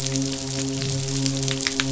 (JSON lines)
{"label": "biophony, midshipman", "recorder": "SoundTrap 500"}